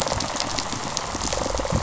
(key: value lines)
label: biophony, rattle response
recorder: SoundTrap 500